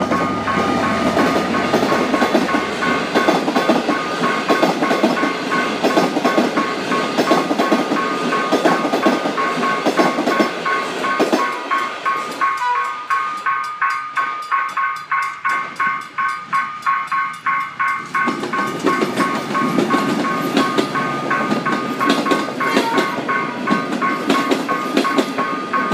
Is the ringing continuous?
yes